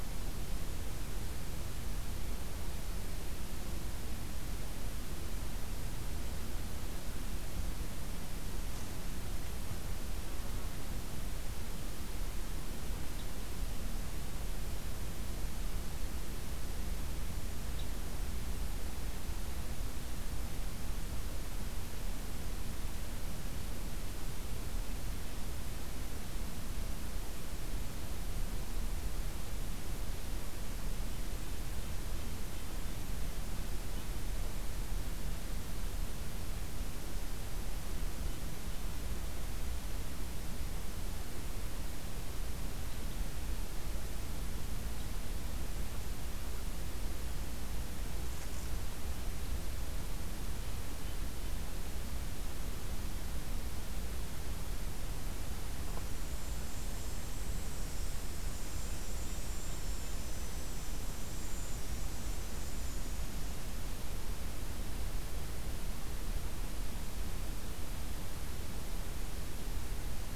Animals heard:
forest ambience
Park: Acadia National Park